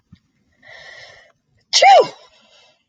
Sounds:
Sneeze